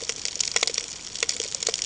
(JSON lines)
{"label": "ambient", "recorder": "HydroMoth"}